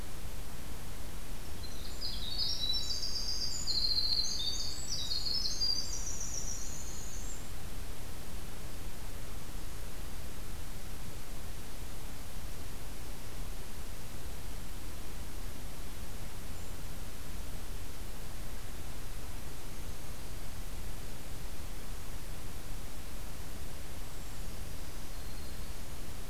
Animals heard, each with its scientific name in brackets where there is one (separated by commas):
Black-throated Green Warbler (Setophaga virens), Winter Wren (Troglodytes hiemalis)